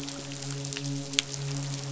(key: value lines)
label: biophony, midshipman
recorder: SoundTrap 500